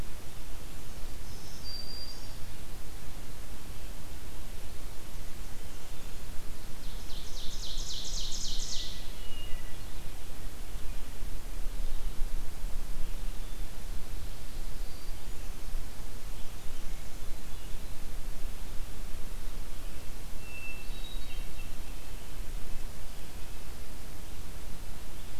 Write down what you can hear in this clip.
Black-throated Green Warbler, Ovenbird, Hermit Thrush